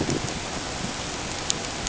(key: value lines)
label: ambient
recorder: HydroMoth